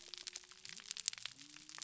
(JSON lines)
{"label": "biophony", "recorder": "SoundTrap 300"}